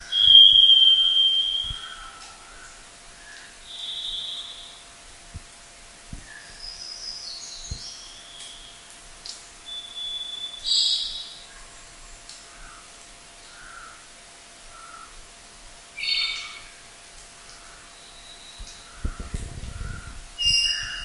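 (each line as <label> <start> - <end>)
A loud, sharp metallic whistle in an open area. 0.0 - 2.1
White noise. 0.0 - 21.0
Quiet bird sounds in the distance in a forest. 1.9 - 3.7
A bird mimics a metallic whistle sound in the distance. 3.5 - 4.9
Birds chirping in the distance. 6.1 - 9.7
Water drops falling in a forest. 9.2 - 9.7
A distant bird mimics a metallic whistle, first quietly then loudly. 9.7 - 11.6
Water drops falling in a forest. 12.2 - 12.9
Quiet bird sounds in the distance in a forest. 12.6 - 16.0
A bird is chirping loudly in the distance. 15.9 - 16.7
Quiet bird sounds in the distance in a forest. 16.6 - 20.4
A bird mimics a sharp, loud metallic whistle. 20.3 - 21.0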